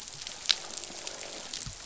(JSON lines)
{"label": "biophony, croak", "recorder": "SoundTrap 500"}